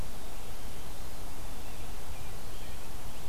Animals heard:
forest ambience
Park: Marsh-Billings-Rockefeller National Historical Park